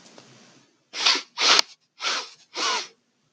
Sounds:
Sniff